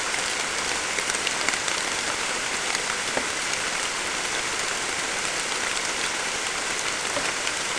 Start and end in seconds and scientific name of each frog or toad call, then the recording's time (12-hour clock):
none
12:45am